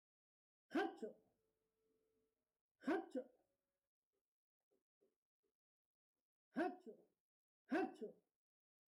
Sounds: Sneeze